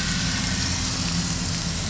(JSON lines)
{"label": "anthrophony, boat engine", "recorder": "SoundTrap 500"}